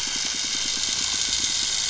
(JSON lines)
{"label": "biophony", "recorder": "SoundTrap 500"}
{"label": "anthrophony, boat engine", "recorder": "SoundTrap 500"}